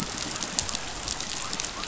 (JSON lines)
{"label": "biophony", "recorder": "SoundTrap 500"}